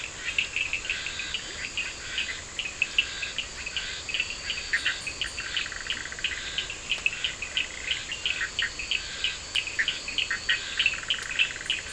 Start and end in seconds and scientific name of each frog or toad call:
0.0	11.9	Boana bischoffi
0.0	11.9	Elachistocleis bicolor
0.0	11.9	Scinax perereca
0.0	11.9	Sphaenorhynchus surdus
5.3	6.5	Boana leptolineata
10.9	11.9	Boana leptolineata